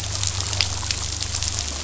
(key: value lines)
label: anthrophony, boat engine
recorder: SoundTrap 500